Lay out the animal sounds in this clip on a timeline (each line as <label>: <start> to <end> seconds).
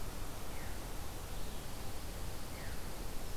Veery (Catharus fuscescens): 0.5 to 0.9 seconds
Veery (Catharus fuscescens): 2.4 to 2.9 seconds